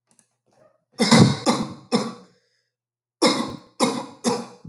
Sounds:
Cough